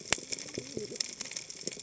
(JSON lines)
{"label": "biophony, cascading saw", "recorder": "HydroMoth"}